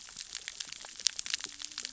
{"label": "biophony, cascading saw", "recorder": "SoundTrap 600 or HydroMoth"}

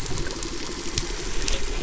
{"label": "anthrophony, boat engine", "recorder": "SoundTrap 300"}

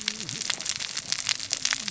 {"label": "biophony, cascading saw", "recorder": "SoundTrap 600 or HydroMoth"}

